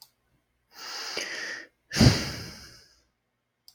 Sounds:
Sigh